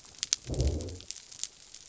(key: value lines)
label: biophony
recorder: SoundTrap 300